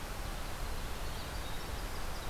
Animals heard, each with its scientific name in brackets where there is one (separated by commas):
Winter Wren (Troglodytes hiemalis)